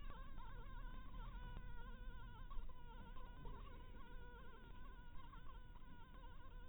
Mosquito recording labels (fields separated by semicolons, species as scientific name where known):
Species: Anopheles maculatus; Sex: female; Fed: blood-fed; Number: one; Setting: cup